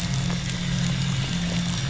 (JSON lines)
{"label": "anthrophony, boat engine", "recorder": "SoundTrap 500"}